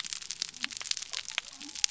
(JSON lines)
{"label": "biophony", "recorder": "SoundTrap 300"}